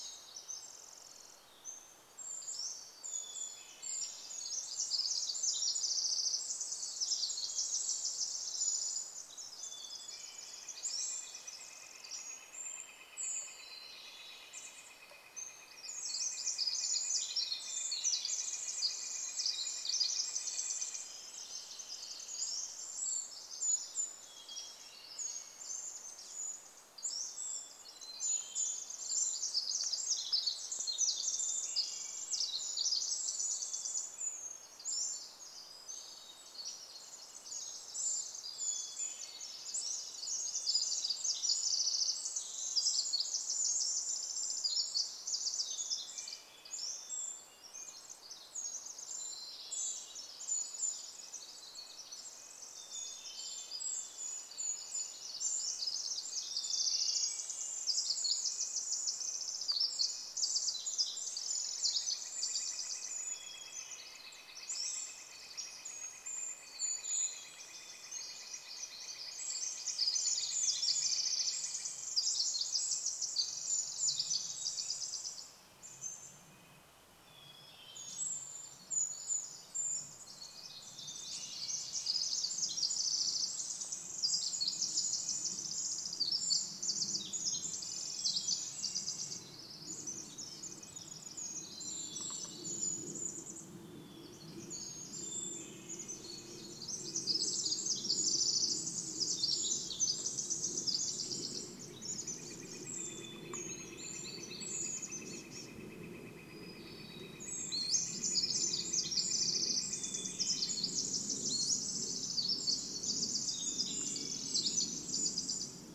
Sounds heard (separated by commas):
Red-breasted Nuthatch song, woodpecker drumming, Brown Creeper call, Pacific-slope Flycatcher call, Pacific-slope Flycatcher song, Hermit Thrush song, Northern Flicker call, airplane, Pacific Wren song, Wrentit song, Brown Creeper song